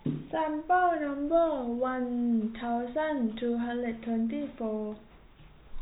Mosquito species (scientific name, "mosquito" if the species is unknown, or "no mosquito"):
no mosquito